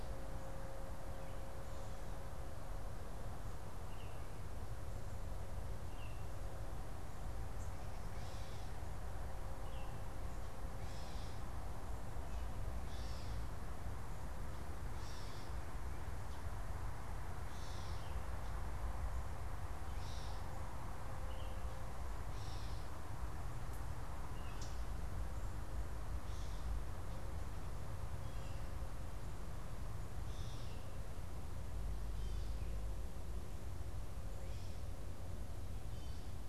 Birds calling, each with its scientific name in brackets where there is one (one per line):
Baltimore Oriole (Icterus galbula)
Gray Catbird (Dumetella carolinensis)
Common Yellowthroat (Geothlypis trichas)